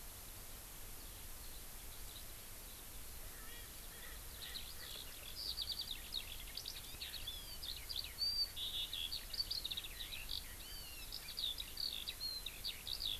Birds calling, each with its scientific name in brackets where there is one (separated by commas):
Eurasian Skylark (Alauda arvensis), Erckel's Francolin (Pternistis erckelii)